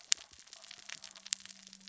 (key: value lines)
label: biophony, cascading saw
recorder: SoundTrap 600 or HydroMoth